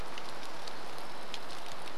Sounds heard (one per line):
rain